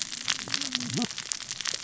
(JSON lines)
{"label": "biophony, cascading saw", "recorder": "SoundTrap 600 or HydroMoth"}